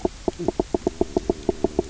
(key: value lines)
label: biophony, knock croak
recorder: SoundTrap 300